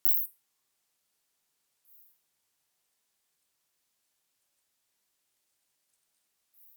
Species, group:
Isophya plevnensis
Orthoptera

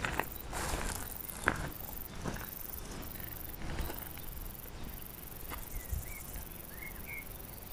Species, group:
Bicolorana bicolor
Orthoptera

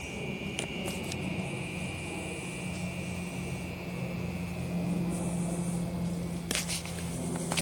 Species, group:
Psaltoda moerens
Cicadidae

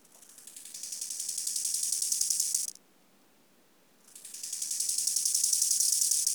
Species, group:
Chorthippus biguttulus
Orthoptera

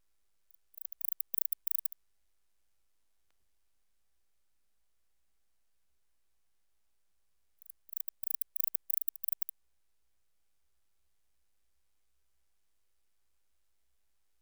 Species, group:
Barbitistes yersini
Orthoptera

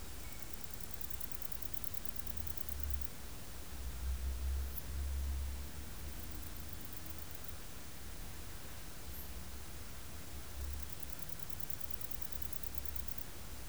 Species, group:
Vichetia oblongicollis
Orthoptera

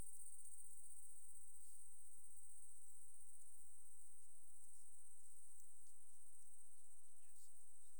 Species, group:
Tettigonia viridissima
Orthoptera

